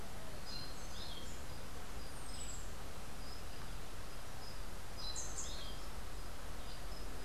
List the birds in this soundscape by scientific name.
Catharus aurantiirostris